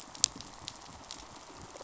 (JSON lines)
{"label": "biophony, rattle response", "recorder": "SoundTrap 500"}